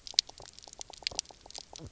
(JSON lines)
{"label": "biophony, knock croak", "recorder": "SoundTrap 300"}